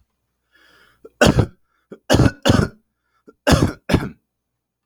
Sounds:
Cough